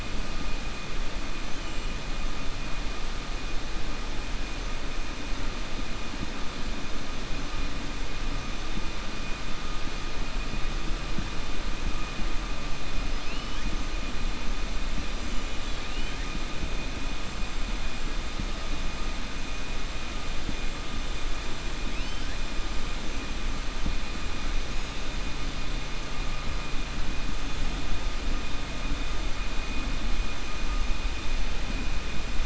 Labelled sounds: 13.1	13.7	killer whale, 2.0 to 3.8 kHz
21.8	22.3	killer whale, 2.2 to 6.2 kHz

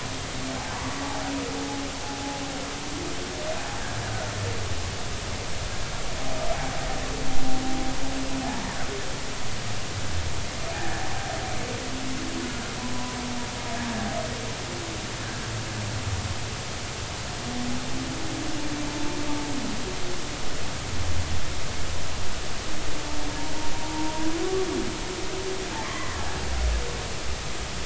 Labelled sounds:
10.7	11.1	humpback whale, 1.6 to 1.8 kHz
23.9	24.3	humpback whale, 0.86 to 0.99 kHz
25.8	26.2	humpback whale, 0.99 to 2.1 kHz

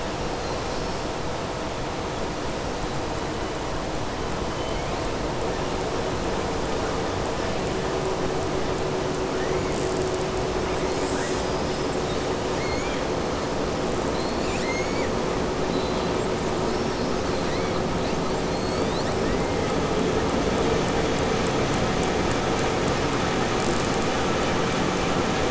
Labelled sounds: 0.3	1.0	killer whale, southern resident, 4.1 to 5.8 kHz
15.6	16.1	killer whale, southern resident, 3.1 to 4.5 kHz
18.5	19.1	killer whale, southern resident, 3.5 to 5.3 kHz

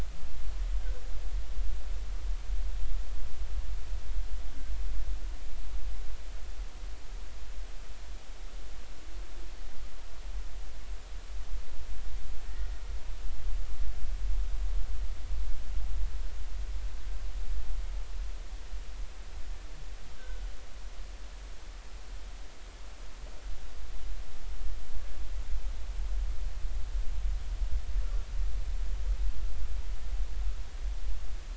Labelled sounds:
12.5	12.7	humpback whale, 1.8 to 2.0 kHz
20.2	20.5	humpback whale, 1.4 to 1.7 kHz

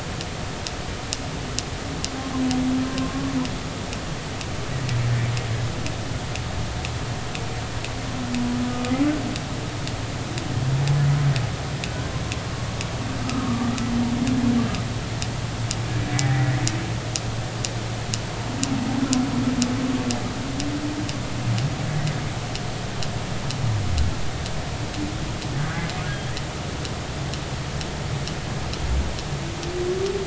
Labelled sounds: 2.9	3.2	humpback whale, 0.99 to 1.1 kHz
8.7	8.9	humpback whale, 1.2 to 1.3 kHz
13.2	13.9	humpback whale, 1.1 to 1.4 kHz
16.3	16.5	humpback whale, 1.7 to 2.0 kHz

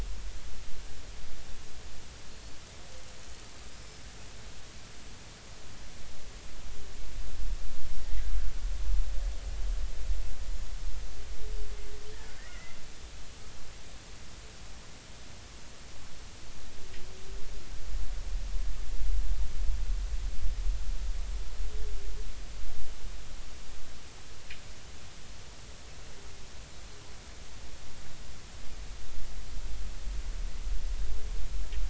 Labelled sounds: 2.3	2.6	killer whale, Bigg's (transient), 4.1 to 4.6 kHz
12.5	12.8	killer whale, Bigg's (transient), 1.9 to 2.2 kHz

